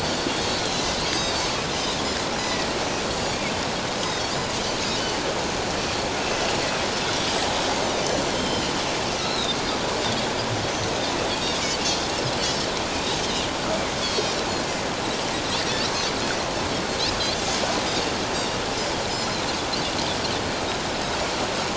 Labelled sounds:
0.0	1.4	Pacific white-sided dolphin, 3.8 to 6.5 kHz
2.4	2.7	Pacific white-sided dolphin, 1.9 to 2.0 kHz
3.9	4.2	Pacific white-sided dolphin, 4.9 to 5.1 kHz
8.3	9.6	Pacific white-sided dolphin, 2.8 to 5.3 kHz
12.3	13.5	Pacific white-sided dolphin, 2.7 to 4.2 kHz
14.0	14.3	Pacific white-sided dolphin, 4.1 to 4.6 kHz
18.3	19.5	Pacific white-sided dolphin, 3.4 to 4.4 kHz

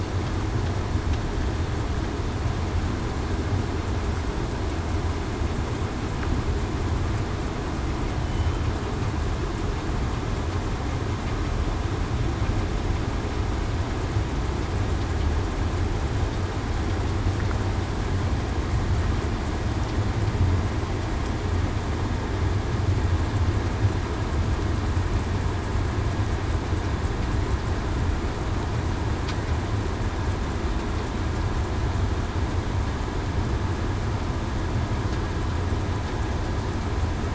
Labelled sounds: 8.2	8.6	killer whale, southern resident, 3.0 to 3.1 kHz

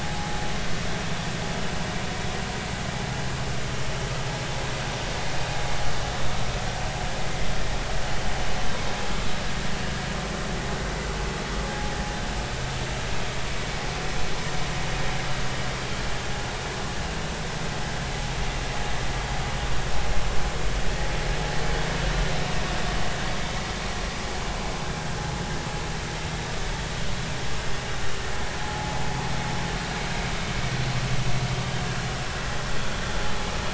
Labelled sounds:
13.5	13.8	vessel noise, 2.2 to 2.3 kHz
28.6	29.0	vessel noise, 0.80 to 0.90 kHz

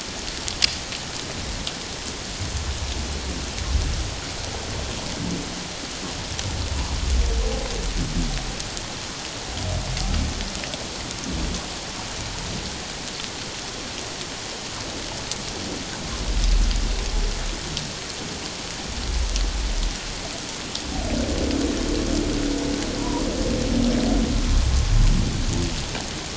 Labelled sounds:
23.0	23.2	humpback whale, 0.91 to 1.1 kHz

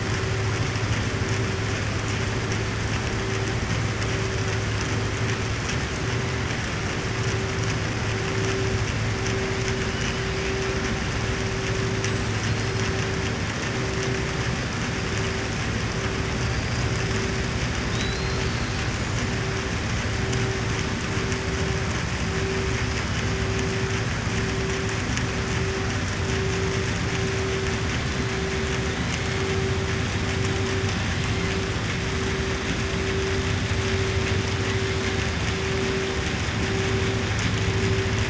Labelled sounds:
17.8	18.9	killer whale, southern resident, 2.9 to 7.9 kHz

